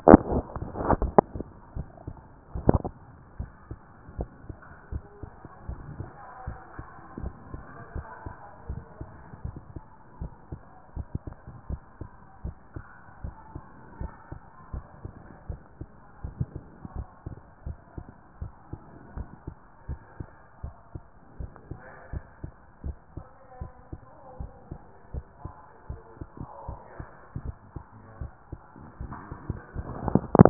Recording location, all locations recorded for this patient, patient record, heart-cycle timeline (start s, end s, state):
tricuspid valve (TV)
aortic valve (AV)+pulmonary valve (PV)+tricuspid valve (TV)+mitral valve (MV)
#Age: nan
#Sex: Female
#Height: nan
#Weight: nan
#Pregnancy status: True
#Murmur: Absent
#Murmur locations: nan
#Most audible location: nan
#Systolic murmur timing: nan
#Systolic murmur shape: nan
#Systolic murmur grading: nan
#Systolic murmur pitch: nan
#Systolic murmur quality: nan
#Diastolic murmur timing: nan
#Diastolic murmur shape: nan
#Diastolic murmur grading: nan
#Diastolic murmur pitch: nan
#Diastolic murmur quality: nan
#Outcome: Normal
#Campaign: 2014 screening campaign
0.00	3.38	unannotated
3.38	3.50	S1
3.50	3.68	systole
3.68	3.78	S2
3.78	4.16	diastole
4.16	4.28	S1
4.28	4.48	systole
4.48	4.56	S2
4.56	4.92	diastole
4.92	5.04	S1
5.04	5.22	systole
5.22	5.30	S2
5.30	5.68	diastole
5.68	5.80	S1
5.80	5.98	systole
5.98	6.08	S2
6.08	6.46	diastole
6.46	6.58	S1
6.58	6.76	systole
6.76	6.86	S2
6.86	7.20	diastole
7.20	7.34	S1
7.34	7.52	systole
7.52	7.62	S2
7.62	7.94	diastole
7.94	8.06	S1
8.06	8.24	systole
8.24	8.34	S2
8.34	8.68	diastole
8.68	8.82	S1
8.82	9.00	systole
9.00	9.08	S2
9.08	9.44	diastole
9.44	9.56	S1
9.56	9.74	systole
9.74	9.82	S2
9.82	10.20	diastole
10.20	10.32	S1
10.32	10.50	systole
10.50	10.60	S2
10.60	10.96	diastole
10.96	11.06	S1
11.06	11.26	systole
11.26	11.34	S2
11.34	11.68	diastole
11.68	11.80	S1
11.80	12.00	systole
12.00	12.08	S2
12.08	12.44	diastole
12.44	12.56	S1
12.56	12.74	systole
12.74	12.84	S2
12.84	13.22	diastole
13.22	13.34	S1
13.34	13.54	systole
13.54	13.62	S2
13.62	14.00	diastole
14.00	14.12	S1
14.12	14.30	systole
14.30	14.40	S2
14.40	14.72	diastole
14.72	14.84	S1
14.84	15.02	systole
15.02	15.12	S2
15.12	15.48	diastole
15.48	15.60	S1
15.60	15.80	systole
15.80	15.88	S2
15.88	16.24	diastole
16.24	16.34	S1
16.34	16.55	systole
16.55	16.61	S2
16.61	16.94	diastole
16.94	17.06	S1
17.06	17.26	systole
17.26	17.36	S2
17.36	17.66	diastole
17.66	17.78	S1
17.78	17.96	systole
17.96	18.06	S2
18.06	18.40	diastole
18.40	18.52	S1
18.52	18.70	systole
18.70	18.80	S2
18.80	19.16	diastole
19.16	19.28	S1
19.28	19.46	systole
19.46	19.56	S2
19.56	19.88	diastole
19.88	20.00	S1
20.00	20.18	systole
20.18	20.28	S2
20.28	20.62	diastole
20.62	20.74	S1
20.74	20.94	systole
20.94	21.02	S2
21.02	21.38	diastole
21.38	21.50	S1
21.50	21.70	systole
21.70	21.80	S2
21.80	22.12	diastole
22.12	22.24	S1
22.24	22.42	systole
22.42	22.52	S2
22.52	22.84	diastole
22.84	22.96	S1
22.96	23.16	systole
23.16	23.26	S2
23.26	23.60	diastole
23.60	23.72	S1
23.72	23.92	systole
23.92	24.00	S2
24.00	24.38	diastole
24.38	24.50	S1
24.50	24.70	systole
24.70	24.80	S2
24.80	25.14	diastole
25.14	25.24	S1
25.24	25.44	systole
25.44	25.54	S2
25.54	25.90	diastole
25.90	26.00	S1
26.00	26.20	systole
26.20	26.28	S2
26.28	26.68	diastole
26.68	26.80	S1
26.80	26.98	systole
26.98	27.08	S2
27.08	27.42	diastole
27.42	27.54	S1
27.54	27.74	systole
27.74	27.84	S2
27.84	28.20	diastole
28.20	28.32	S1
28.32	28.50	systole
28.50	28.60	S2
28.60	29.00	diastole
29.00	29.14	S1
29.14	29.32	systole
29.32	29.38	S2
29.38	29.77	diastole
29.77	30.50	unannotated